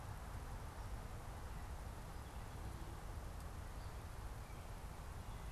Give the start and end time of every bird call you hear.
[3.00, 5.52] Gray Catbird (Dumetella carolinensis)

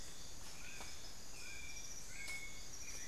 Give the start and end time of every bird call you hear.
[0.00, 3.07] Dull-capped Attila (Attila bolivianus)
[0.00, 3.07] White-necked Thrush (Turdus albicollis)

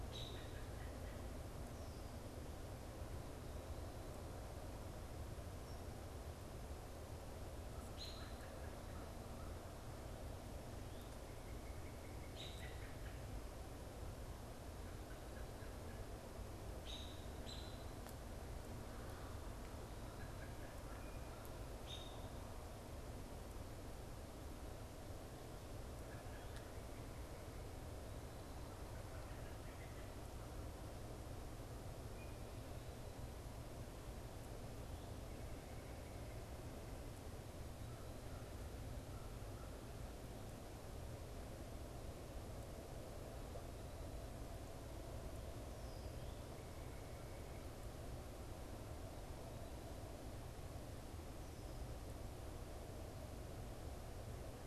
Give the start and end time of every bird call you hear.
[0.00, 1.51] American Robin (Turdus migratorius)
[7.51, 32.31] American Robin (Turdus migratorius)
[11.21, 12.71] Northern Cardinal (Cardinalis cardinalis)
[37.61, 40.01] American Crow (Corvus brachyrhynchos)

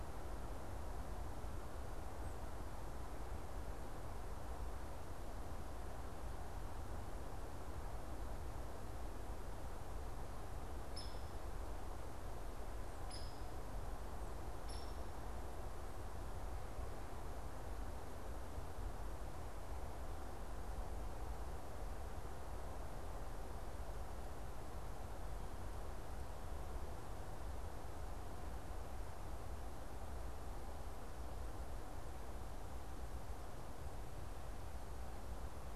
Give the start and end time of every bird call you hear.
[10.89, 14.99] Hairy Woodpecker (Dryobates villosus)

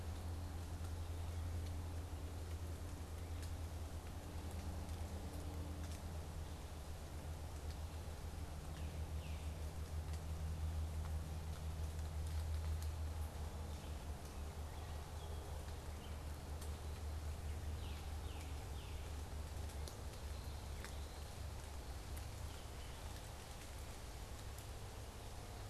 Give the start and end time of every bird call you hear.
[8.37, 9.56] Tufted Titmouse (Baeolophus bicolor)
[13.37, 25.16] unidentified bird
[17.46, 19.16] Tufted Titmouse (Baeolophus bicolor)

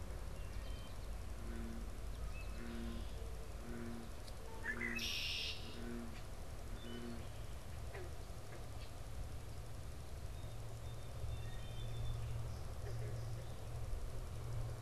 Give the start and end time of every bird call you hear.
[0.10, 1.10] Wood Thrush (Hylocichla mustelina)
[4.40, 5.90] Red-winged Blackbird (Agelaius phoeniceus)
[6.60, 7.50] Wood Thrush (Hylocichla mustelina)
[10.50, 12.30] Song Sparrow (Melospiza melodia)

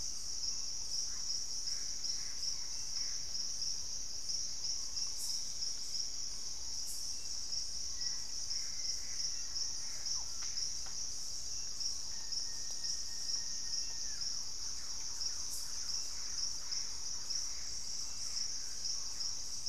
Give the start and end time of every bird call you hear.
[0.00, 12.42] Purple-throated Fruitcrow (Querula purpurata)
[0.92, 3.42] Gray Antbird (Cercomacra cinerascens)
[7.72, 10.12] Black-faced Antthrush (Formicarius analis)
[8.02, 10.22] Gray Antbird (Cercomacra cinerascens)
[9.32, 10.92] Collared Trogon (Trogon collaris)
[11.92, 14.42] Plain-winged Antshrike (Thamnophilus schistaceus)
[12.72, 19.62] Thrush-like Wren (Campylorhynchus turdinus)
[15.82, 18.02] Gray Antbird (Cercomacra cinerascens)

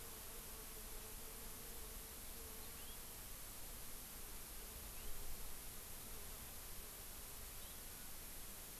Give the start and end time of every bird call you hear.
[2.63, 3.03] Hawaii Amakihi (Chlorodrepanis virens)
[7.53, 7.83] Hawaii Amakihi (Chlorodrepanis virens)

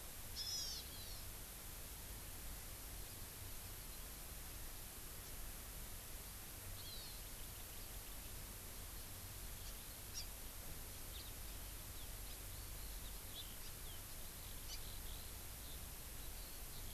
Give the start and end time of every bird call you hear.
[0.33, 0.83] Hawaiian Hawk (Buteo solitarius)
[6.73, 7.13] Hawaii Amakihi (Chlorodrepanis virens)
[11.13, 11.33] House Finch (Haemorhous mexicanus)
[11.83, 16.94] Eurasian Skylark (Alauda arvensis)

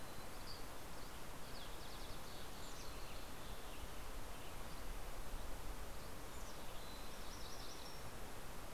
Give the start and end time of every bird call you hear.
[0.00, 1.30] Dusky Flycatcher (Empidonax oberholseri)
[2.60, 5.30] Western Tanager (Piranga ludoviciana)
[6.70, 8.20] Mountain Chickadee (Poecile gambeli)
[6.80, 8.50] MacGillivray's Warbler (Geothlypis tolmiei)

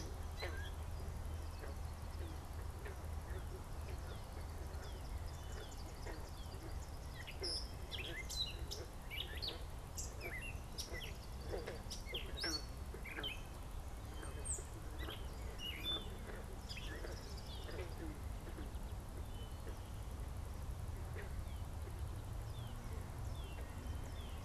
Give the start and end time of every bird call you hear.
[0.00, 18.42] Gray Catbird (Dumetella carolinensis)
[21.32, 24.42] Northern Cardinal (Cardinalis cardinalis)

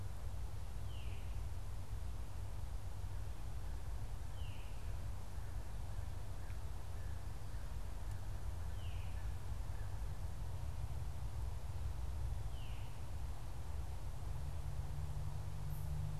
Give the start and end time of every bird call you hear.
[0.00, 4.95] Veery (Catharus fuscescens)
[5.25, 10.15] American Crow (Corvus brachyrhynchos)
[8.55, 16.20] Veery (Catharus fuscescens)

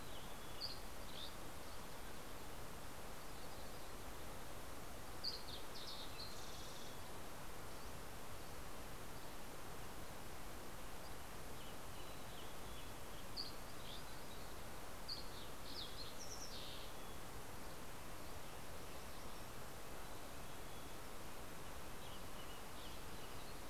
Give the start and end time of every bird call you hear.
[0.30, 2.10] Dusky Flycatcher (Empidonax oberholseri)
[1.50, 2.70] Mountain Quail (Oreortyx pictus)
[2.40, 4.40] Yellow-rumped Warbler (Setophaga coronata)
[4.60, 7.30] Fox Sparrow (Passerella iliaca)
[7.70, 11.30] Dusky Flycatcher (Empidonax oberholseri)
[11.10, 13.60] Western Tanager (Piranga ludoviciana)
[11.80, 13.20] Mountain Chickadee (Poecile gambeli)
[12.80, 14.10] Dusky Flycatcher (Empidonax oberholseri)
[13.00, 14.90] Yellow-rumped Warbler (Setophaga coronata)
[14.50, 17.70] Fox Sparrow (Passerella iliaca)
[18.00, 23.70] Red-breasted Nuthatch (Sitta canadensis)
[19.90, 21.10] Mountain Chickadee (Poecile gambeli)
[21.70, 23.70] Western Tanager (Piranga ludoviciana)
[21.70, 23.70] Yellow-rumped Warbler (Setophaga coronata)

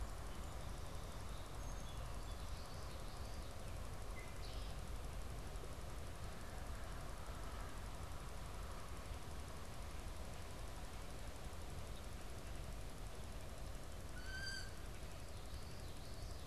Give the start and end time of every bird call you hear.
[0.00, 3.50] Song Sparrow (Melospiza melodia)
[2.00, 3.60] Common Yellowthroat (Geothlypis trichas)
[3.90, 4.70] Red-winged Blackbird (Agelaius phoeniceus)
[14.00, 14.70] Wood Duck (Aix sponsa)

